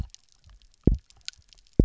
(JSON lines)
{"label": "biophony, double pulse", "recorder": "SoundTrap 300"}